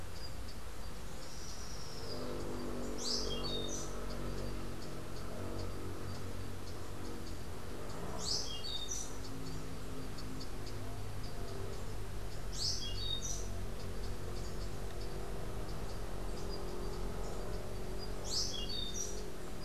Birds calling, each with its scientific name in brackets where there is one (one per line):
Rufous-tailed Hummingbird (Amazilia tzacatl)
Orange-billed Nightingale-Thrush (Catharus aurantiirostris)